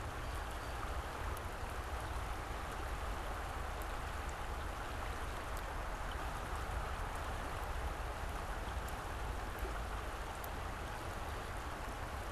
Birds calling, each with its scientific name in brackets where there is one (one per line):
Blue Jay (Cyanocitta cristata)